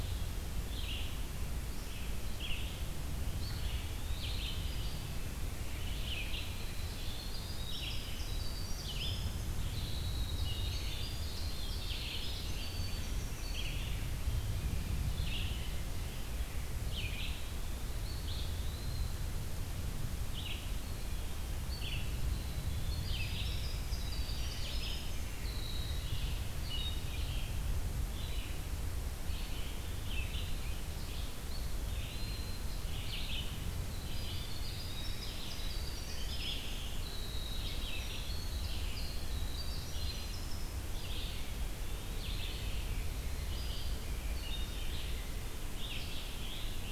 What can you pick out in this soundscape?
Red-eyed Vireo, Eastern Wood-Pewee, Winter Wren, Scarlet Tanager